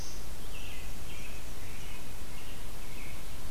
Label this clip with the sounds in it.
Black-throated Blue Warbler, American Robin